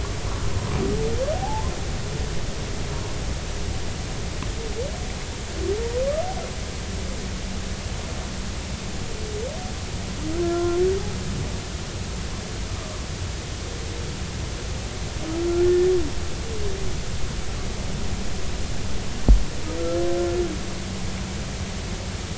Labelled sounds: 1.4	1.7	humpback whale, 0.80 to 1.1 kHz
10.4	10.8	humpback whale, 0.99 to 1.4 kHz
15.6	15.9	humpback whale, 1.7 to 1.8 kHz

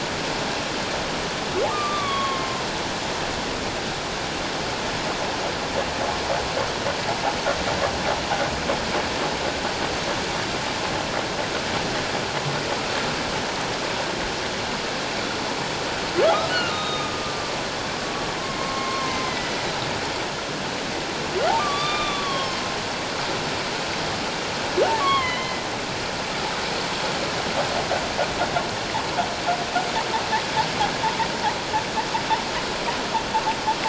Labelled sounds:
1.7	2.7	humpback whale, 0.94 to 3.6 kHz
16.2	17.5	humpback whale, 1.1 to 3.8 kHz
18.4	19.6	humpback whale, 0.84 to 2.2 kHz
21.6	22.6	humpback whale, 1.0 to 5.4 kHz
25.0	25.6	humpback whale, 0.97 to 3.4 kHz

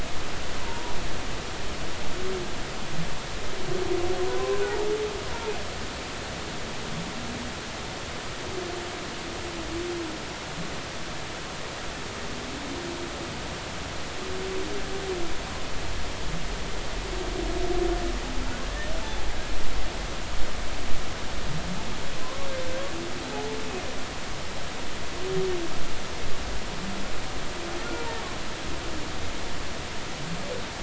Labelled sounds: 0.6	0.9	humpback whale, 0.90 to 1.1 kHz
4.3	4.6	humpback whale, 0.96 to 1.1 kHz

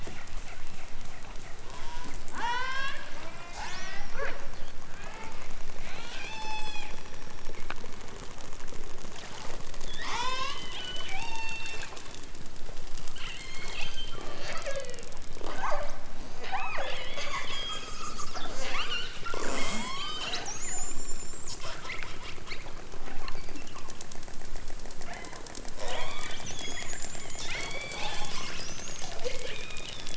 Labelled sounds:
1.7	4.4	killer whale, southern Alaska resident, 0.28 to 8.0 kHz
4.8	5.4	killer whale, southern Alaska resident, 0.32 to 3.4 kHz
5.8	7.2	killer whale, southern Alaska resident, 0.46 to 8.0 kHz
9.8	10.6	killer whale, southern Alaska resident, 0.37 to 8.0 kHz
11.1	11.9	killer whale, southern Alaska resident, 0.55 to 8.0 kHz
13.1	15.1	killer whale, southern Alaska resident, 0.18 to 6.5 kHz
15.5	16.0	killer whale, southern Alaska resident, 0.37 to 5.9 kHz
16.4	17.0	killer whale, southern Alaska resident, 0.32 to 5.9 kHz
18.5	21.6	killer whale, southern Alaska resident, 0.23 to 8.0 kHz
25.0	25.5	killer whale, southern Alaska resident, 0.64 to 4.6 kHz
25.7	27.0	killer whale, southern Alaska resident, 0.23 to 8.0 kHz
27.3	28.6	killer whale, southern Alaska resident, 0.37 to 8.0 kHz
29.2	30.1	killer whale, southern Alaska resident, 1.5 to 4.1 kHz

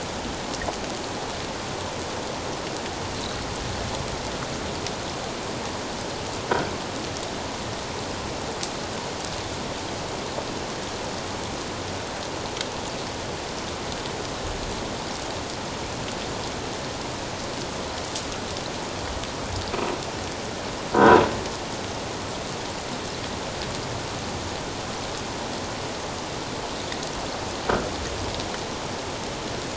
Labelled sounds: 20.9	21.2	croaking sound likely from a nearby submerged object, 0.91 to 1.6 kHz

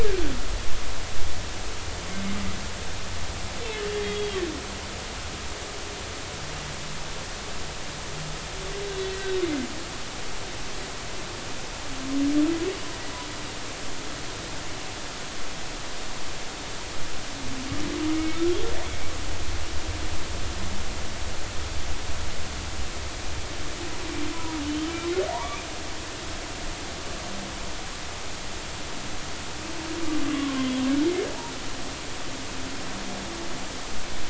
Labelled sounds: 4.0	4.4	humpback whale, 3.1 to 3.4 kHz
18.1	18.4	humpback whale, 2.1 to 2.3 kHz
18.8	19.1	humpback whale, 2.0 to 2.3 kHz
25.3	25.6	humpback whale, 0.80 to 1.2 kHz
30.2	30.7	humpback whale, 0.99 to 1.2 kHz

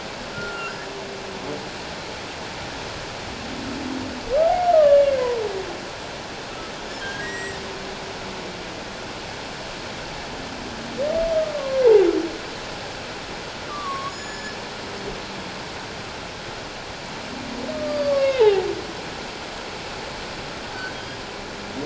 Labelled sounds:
0.3	0.7	humpback whale, 1.3 to 1.6 kHz
4.7	5.2	humpback whale, 1.1 to 2.3 kHz
7.0	7.6	humpback whale, 1.5 to 7.7 kHz
11.6	11.9	humpback whale, 0.94 to 1.2 kHz
13.7	14.6	humpback whale, 1.0 to 7.0 kHz
17.7	18.7	humpback whale, 0.78 to 5.0 kHz

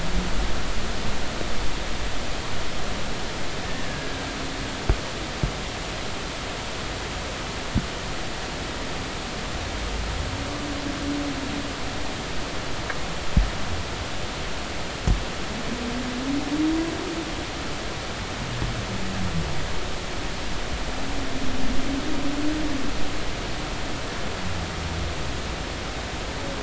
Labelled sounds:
3.6	4.2	humpback whale, 1.6 to 1.9 kHz

